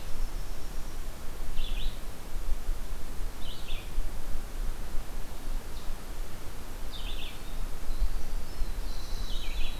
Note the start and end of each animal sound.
[0.00, 0.94] Winter Wren (Troglodytes hiemalis)
[0.00, 9.79] Red-eyed Vireo (Vireo olivaceus)
[7.65, 9.79] Winter Wren (Troglodytes hiemalis)
[8.39, 9.67] Black-throated Blue Warbler (Setophaga caerulescens)

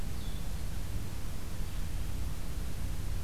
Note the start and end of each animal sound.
[0.00, 3.24] Blue-headed Vireo (Vireo solitarius)

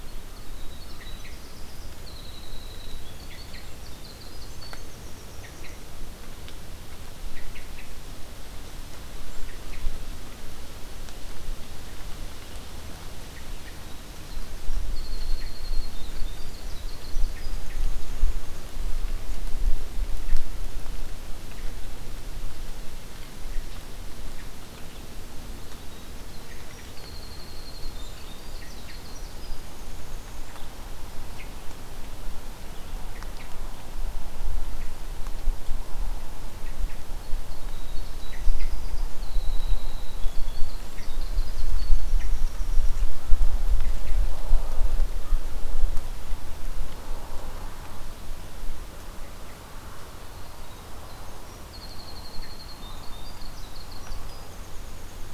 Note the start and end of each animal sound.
[0.00, 5.85] Winter Wren (Troglodytes hiemalis)
[0.81, 1.47] Hermit Thrush (Catharus guttatus)
[3.12, 3.70] Hermit Thrush (Catharus guttatus)
[5.35, 5.79] Hermit Thrush (Catharus guttatus)
[7.17, 7.91] Hermit Thrush (Catharus guttatus)
[9.42, 9.87] Hermit Thrush (Catharus guttatus)
[13.24, 13.77] Hermit Thrush (Catharus guttatus)
[13.60, 18.45] Winter Wren (Troglodytes hiemalis)
[15.25, 15.60] Hermit Thrush (Catharus guttatus)
[17.21, 17.89] Hermit Thrush (Catharus guttatus)
[25.52, 30.61] Winter Wren (Troglodytes hiemalis)
[26.39, 26.91] Hermit Thrush (Catharus guttatus)
[28.48, 28.97] Hermit Thrush (Catharus guttatus)
[31.29, 31.49] Hermit Thrush (Catharus guttatus)
[33.08, 33.56] Hermit Thrush (Catharus guttatus)
[36.58, 37.03] Hermit Thrush (Catharus guttatus)
[36.97, 42.96] Winter Wren (Troglodytes hiemalis)
[38.16, 38.74] Hermit Thrush (Catharus guttatus)
[40.89, 41.09] Hermit Thrush (Catharus guttatus)
[42.08, 42.32] Hermit Thrush (Catharus guttatus)
[43.69, 44.12] Hermit Thrush (Catharus guttatus)
[50.16, 55.34] Winter Wren (Troglodytes hiemalis)

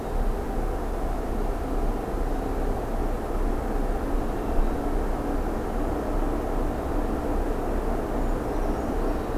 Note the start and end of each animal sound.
[8.16, 9.38] Brown Creeper (Certhia americana)

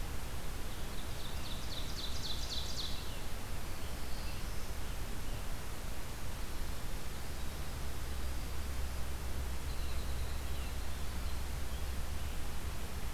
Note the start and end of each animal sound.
[0.81, 2.99] Ovenbird (Seiurus aurocapilla)
[2.44, 5.44] Scarlet Tanager (Piranga olivacea)
[3.50, 4.79] Black-throated Blue Warbler (Setophaga caerulescens)
[9.34, 11.74] Winter Wren (Troglodytes hiemalis)
[9.69, 12.44] Scarlet Tanager (Piranga olivacea)

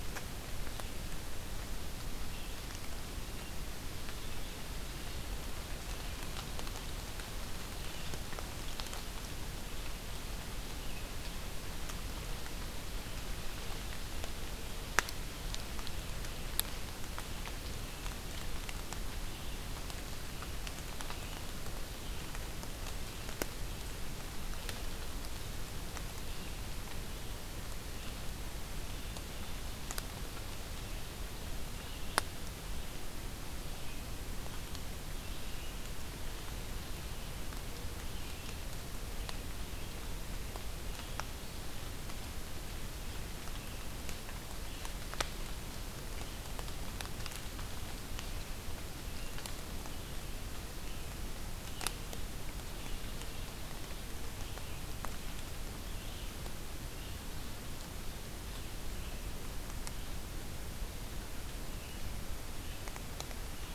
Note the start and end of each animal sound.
[0.00, 63.74] Red-eyed Vireo (Vireo olivaceus)

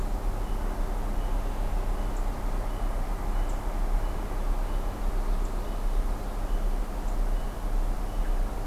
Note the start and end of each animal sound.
[4.07, 6.35] Ovenbird (Seiurus aurocapilla)

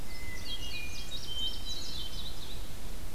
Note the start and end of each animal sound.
[0.00, 2.85] Indigo Bunting (Passerina cyanea)
[0.06, 2.61] Hermit Thrush (Catharus guttatus)

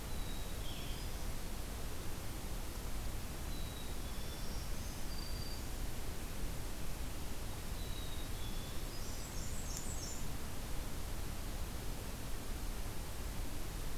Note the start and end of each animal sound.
[0.00, 1.15] Black-capped Chickadee (Poecile atricapillus)
[0.45, 1.30] Black-throated Green Warbler (Setophaga virens)
[3.34, 4.44] Black-capped Chickadee (Poecile atricapillus)
[4.02, 5.75] Black-throated Green Warbler (Setophaga virens)
[7.62, 8.89] Black-capped Chickadee (Poecile atricapillus)
[8.95, 10.27] Black-and-white Warbler (Mniotilta varia)

